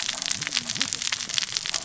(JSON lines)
{"label": "biophony, cascading saw", "recorder": "SoundTrap 600 or HydroMoth"}